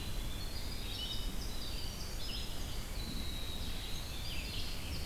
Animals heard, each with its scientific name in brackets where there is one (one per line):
Winter Wren (Troglodytes hiemalis)
Red-eyed Vireo (Vireo olivaceus)